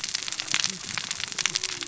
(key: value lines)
label: biophony, cascading saw
recorder: SoundTrap 600 or HydroMoth